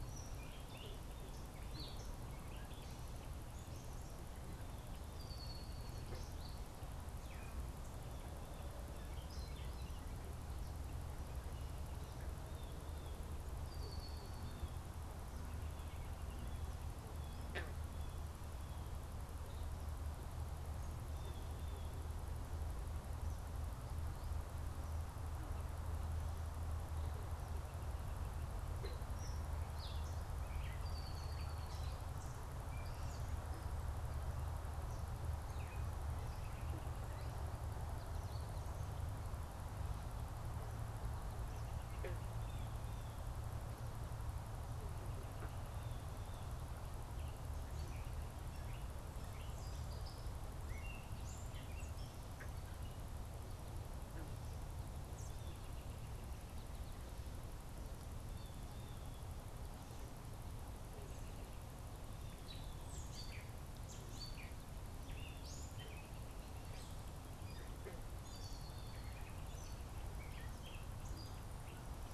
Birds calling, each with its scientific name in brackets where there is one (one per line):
unidentified bird
Gray Catbird (Dumetella carolinensis)
Red-winged Blackbird (Agelaius phoeniceus)
Black-capped Chickadee (Poecile atricapillus)
American Goldfinch (Spinus tristis)
Blue Jay (Cyanocitta cristata)